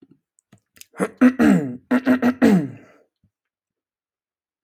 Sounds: Throat clearing